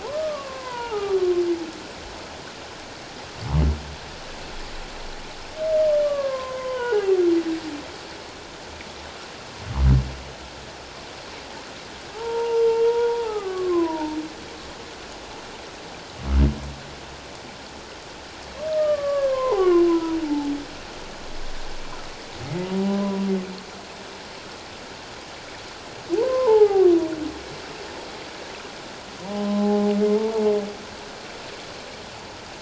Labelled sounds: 0.0	1.2	humpback whale, 0.78 to 1.6 kHz
6.0	7.2	humpback whale, 0.78 to 3.1 kHz
12.1	14.2	humpback whale, 0.78 to 3.4 kHz
18.7	20.5	humpback whale, 0.78 to 3.0 kHz
22.6	23.2	humpback whale, 0.88 to 1.1 kHz
26.1	26.9	humpback whale, 0.78 to 1.3 kHz
29.2	30.4	humpback whale, 0.78 to 1.1 kHz

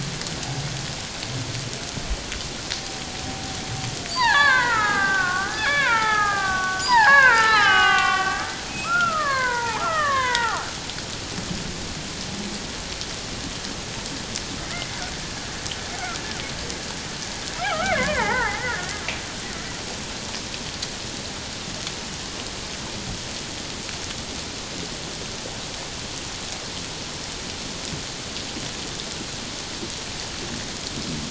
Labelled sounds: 4.1	8.5	killer whale, Bigg's (transient), 0.78 to 4.7 kHz
8.7	10.7	killer whale, Bigg's (transient), call T08, 0.78 to 3.9 kHz
14.6	14.9	killer whale, Bigg's (transient), 1.8 to 2.2 kHz
17.7	18.9	killer whale, Bigg's (transient), 0.78 to 2.4 kHz

